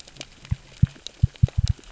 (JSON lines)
{"label": "biophony, knock", "recorder": "SoundTrap 600 or HydroMoth"}